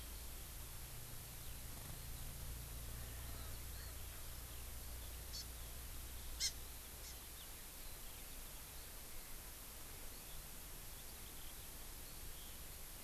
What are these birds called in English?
Hawaii Amakihi